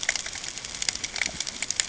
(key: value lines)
label: ambient
recorder: HydroMoth